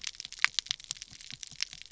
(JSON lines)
{"label": "biophony", "recorder": "SoundTrap 300"}